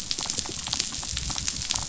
{"label": "biophony, damselfish", "recorder": "SoundTrap 500"}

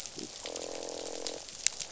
{"label": "biophony, croak", "recorder": "SoundTrap 500"}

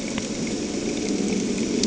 {"label": "anthrophony, boat engine", "recorder": "HydroMoth"}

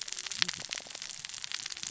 {"label": "biophony, cascading saw", "recorder": "SoundTrap 600 or HydroMoth"}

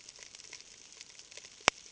{"label": "ambient", "recorder": "HydroMoth"}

